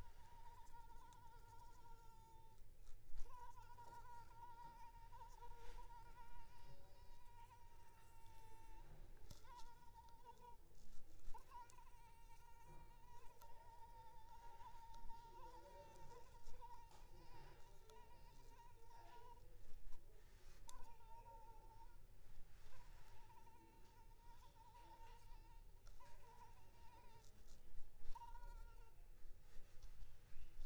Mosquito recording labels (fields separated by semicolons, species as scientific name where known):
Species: Anopheles arabiensis; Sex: female; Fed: unfed; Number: one; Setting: cup